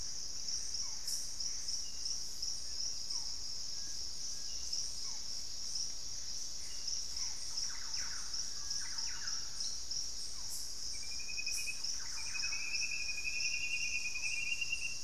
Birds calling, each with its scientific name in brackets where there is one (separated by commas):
Thrush-like Wren (Campylorhynchus turdinus), unidentified bird, Screaming Piha (Lipaugus vociferans), Barred Forest-Falcon (Micrastur ruficollis), Gray Antbird (Cercomacra cinerascens)